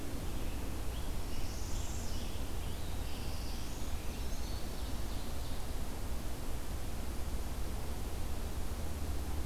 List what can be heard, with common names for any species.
Scarlet Tanager, Northern Parula, Black-throated Blue Warbler, Eastern Wood-Pewee, Ovenbird